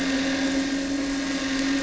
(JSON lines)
{"label": "anthrophony, boat engine", "recorder": "SoundTrap 300"}